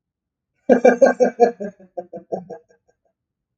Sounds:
Laughter